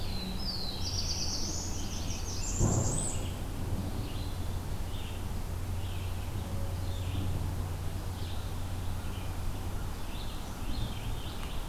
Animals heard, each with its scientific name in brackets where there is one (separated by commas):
Blackburnian Warbler (Setophaga fusca), Black-throated Blue Warbler (Setophaga caerulescens), Red-eyed Vireo (Vireo olivaceus), Scarlet Tanager (Piranga olivacea)